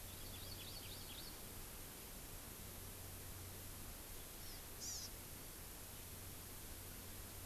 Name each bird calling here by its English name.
Hawaii Amakihi